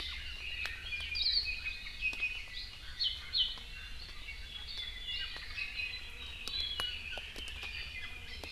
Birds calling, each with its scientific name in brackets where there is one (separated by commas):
Iiwi (Drepanis coccinea), Hawaii Akepa (Loxops coccineus)